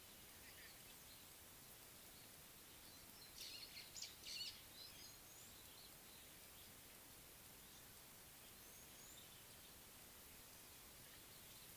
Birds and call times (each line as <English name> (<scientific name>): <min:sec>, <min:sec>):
White-browed Sparrow-Weaver (Plocepasser mahali): 0:04.1